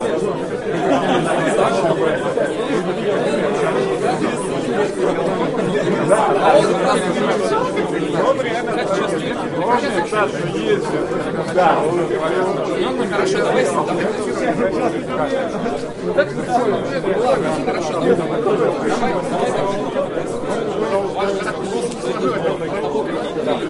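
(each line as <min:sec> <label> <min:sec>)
0:00.0 People talk and mingle with overlapping voices, creating the ambient noise of a busy event during a conference break. 0:23.7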